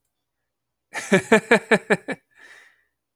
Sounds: Laughter